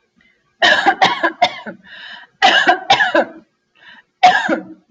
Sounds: Cough